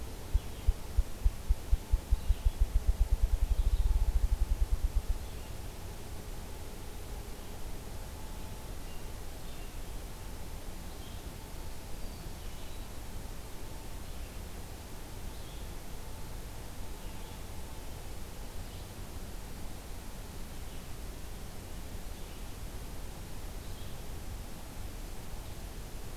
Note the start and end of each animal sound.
[0.00, 5.62] Ruffed Grouse (Bonasa umbellus)
[0.00, 26.16] Red-eyed Vireo (Vireo olivaceus)
[11.46, 12.63] Black-throated Blue Warbler (Setophaga caerulescens)

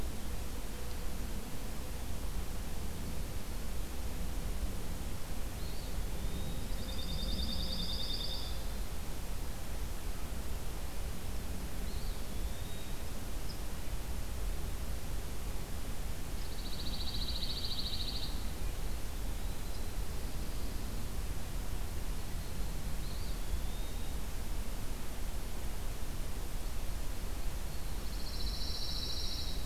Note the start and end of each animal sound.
[5.39, 6.68] Eastern Wood-Pewee (Contopus virens)
[6.50, 8.58] Pine Warbler (Setophaga pinus)
[11.73, 13.31] Eastern Wood-Pewee (Contopus virens)
[16.25, 18.32] Pine Warbler (Setophaga pinus)
[19.00, 20.09] Eastern Wood-Pewee (Contopus virens)
[22.85, 24.40] Eastern Wood-Pewee (Contopus virens)
[27.91, 29.66] Pine Warbler (Setophaga pinus)

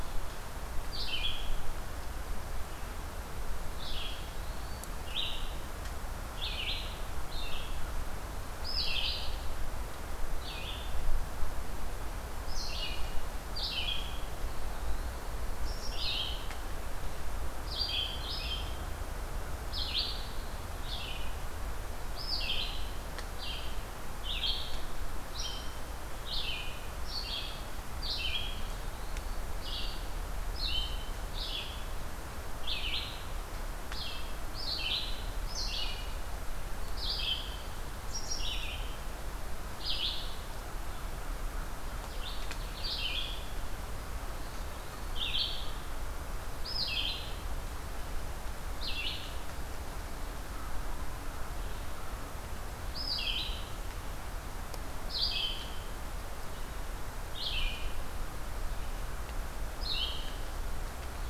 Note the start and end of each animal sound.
[0.87, 40.29] Red-eyed Vireo (Vireo olivaceus)
[3.86, 5.01] Eastern Wood-Pewee (Contopus virens)
[14.22, 15.33] Eastern Wood-Pewee (Contopus virens)
[28.27, 29.46] Eastern Wood-Pewee (Contopus virens)
[42.02, 61.30] Red-eyed Vireo (Vireo olivaceus)
[44.22, 45.31] Eastern Wood-Pewee (Contopus virens)

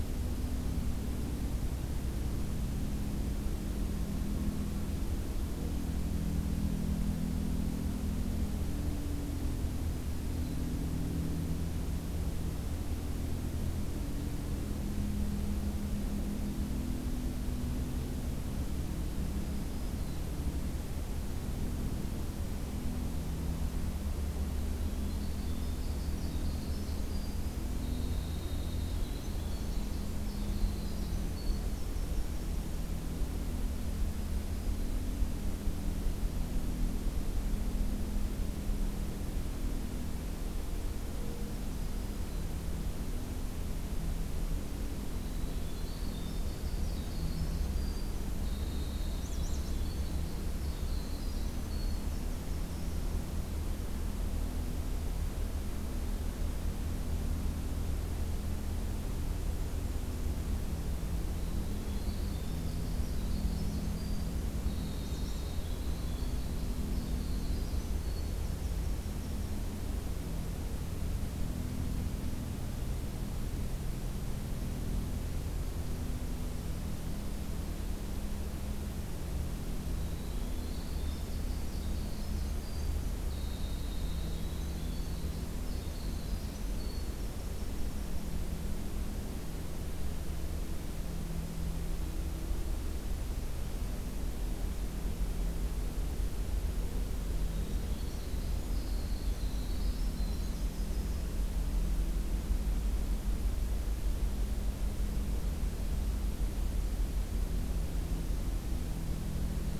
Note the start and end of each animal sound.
[19.01, 20.49] Black-throated Green Warbler (Setophaga virens)
[24.67, 33.07] Winter Wren (Troglodytes hiemalis)
[29.38, 29.94] American Redstart (Setophaga ruticilla)
[45.02, 53.17] Winter Wren (Troglodytes hiemalis)
[49.15, 49.90] American Redstart (Setophaga ruticilla)
[61.25, 69.71] Winter Wren (Troglodytes hiemalis)
[64.82, 65.53] American Redstart (Setophaga ruticilla)
[79.64, 88.34] Winter Wren (Troglodytes hiemalis)
[97.37, 101.35] Winter Wren (Troglodytes hiemalis)

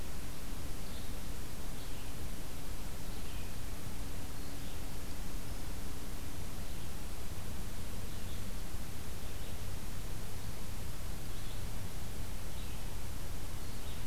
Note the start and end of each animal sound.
[0.00, 7.41] Red-eyed Vireo (Vireo olivaceus)
[7.99, 14.06] Red-eyed Vireo (Vireo olivaceus)

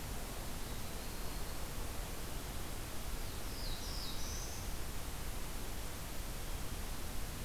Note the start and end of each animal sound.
[0.51, 1.63] Yellow-rumped Warbler (Setophaga coronata)
[3.10, 4.72] Black-throated Blue Warbler (Setophaga caerulescens)

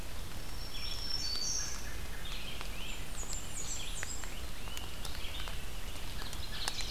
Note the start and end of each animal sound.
[0.00, 6.90] Red-eyed Vireo (Vireo olivaceus)
[0.27, 1.89] Black-throated Green Warbler (Setophaga virens)
[2.78, 4.44] Blackburnian Warbler (Setophaga fusca)
[4.17, 5.70] Great Crested Flycatcher (Myiarchus crinitus)

